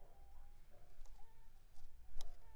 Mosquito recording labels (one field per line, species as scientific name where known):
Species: Anopheles funestus s.s.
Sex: female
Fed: unfed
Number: one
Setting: cup